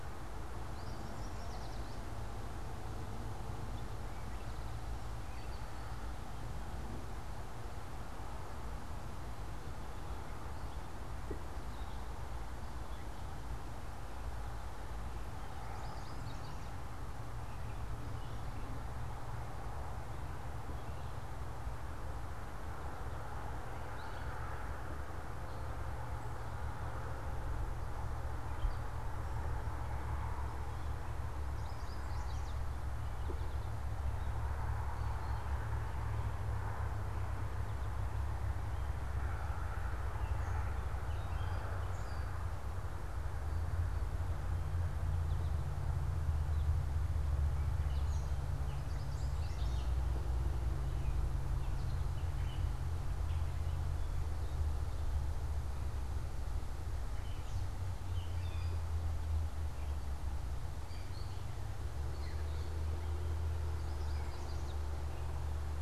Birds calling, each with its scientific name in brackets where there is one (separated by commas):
Yellow Warbler (Setophaga petechia), Gray Catbird (Dumetella carolinensis)